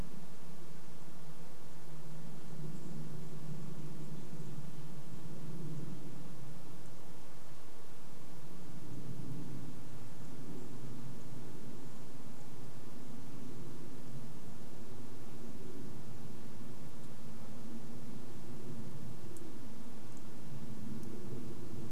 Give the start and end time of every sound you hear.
[0, 4] unidentified bird chip note
[0, 22] airplane
[10, 12] unidentified bird chip note

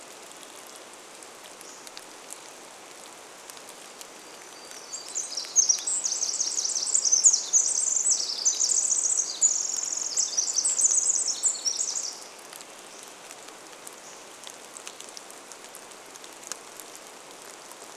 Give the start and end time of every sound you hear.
[0, 2] Hammond's Flycatcher song
[0, 18] rain
[4, 6] Hermit Warbler song
[4, 14] Pacific Wren song
[12, 16] Hammond's Flycatcher song

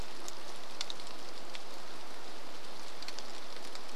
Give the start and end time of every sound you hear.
[0, 4] rain

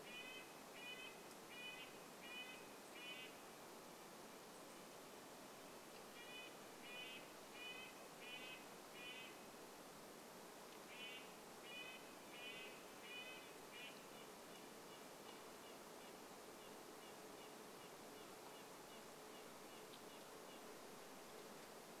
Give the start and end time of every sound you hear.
[0, 22] Red-breasted Nuthatch song

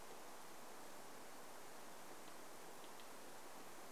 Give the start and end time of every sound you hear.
[2, 4] woodpecker drumming

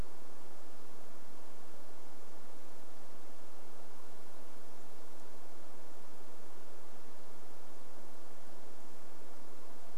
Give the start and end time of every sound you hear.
[4, 6] unidentified bird chip note

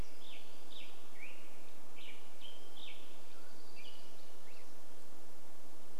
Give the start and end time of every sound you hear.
[0, 6] Black-headed Grosbeak song
[2, 4] Mountain Quail call
[2, 4] warbler song

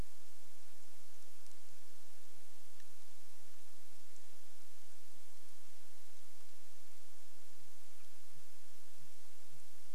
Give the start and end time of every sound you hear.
[0, 4] Sooty Grouse song
[6, 10] Sooty Grouse song

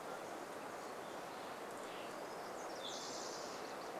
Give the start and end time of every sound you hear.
[0, 2] Mountain Quail call
[0, 2] Steller's Jay call
[2, 4] Spotted Towhee song
[2, 4] unidentified sound

